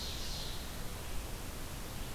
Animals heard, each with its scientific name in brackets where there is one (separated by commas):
Ovenbird (Seiurus aurocapilla), Red-eyed Vireo (Vireo olivaceus)